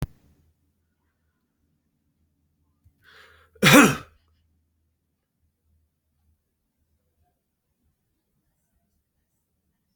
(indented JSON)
{
  "expert_labels": [
    {
      "quality": "ok",
      "cough_type": "unknown",
      "dyspnea": false,
      "wheezing": false,
      "stridor": false,
      "choking": false,
      "congestion": false,
      "nothing": true,
      "diagnosis": "healthy cough",
      "severity": "pseudocough/healthy cough"
    }
  ],
  "age": 46,
  "gender": "male",
  "respiratory_condition": false,
  "fever_muscle_pain": false,
  "status": "symptomatic"
}